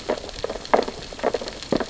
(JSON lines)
{"label": "biophony, sea urchins (Echinidae)", "recorder": "SoundTrap 600 or HydroMoth"}